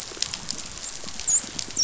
{"label": "biophony, dolphin", "recorder": "SoundTrap 500"}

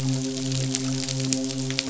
{"label": "biophony, midshipman", "recorder": "SoundTrap 500"}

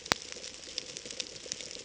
{"label": "ambient", "recorder": "HydroMoth"}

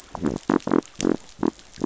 {"label": "biophony", "recorder": "SoundTrap 500"}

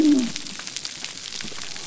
{"label": "biophony", "recorder": "SoundTrap 300"}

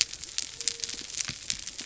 {"label": "biophony", "recorder": "SoundTrap 300"}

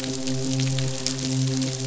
{"label": "biophony, midshipman", "recorder": "SoundTrap 500"}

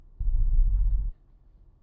{"label": "anthrophony, boat engine", "recorder": "SoundTrap 300"}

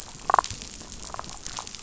{"label": "biophony, damselfish", "recorder": "SoundTrap 500"}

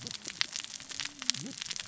{"label": "biophony, cascading saw", "recorder": "SoundTrap 600 or HydroMoth"}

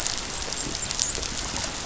{"label": "biophony, dolphin", "recorder": "SoundTrap 500"}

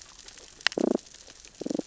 {"label": "biophony, damselfish", "recorder": "SoundTrap 600 or HydroMoth"}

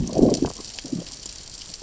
{"label": "biophony, growl", "recorder": "SoundTrap 600 or HydroMoth"}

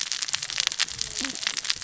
{"label": "biophony, cascading saw", "recorder": "SoundTrap 600 or HydroMoth"}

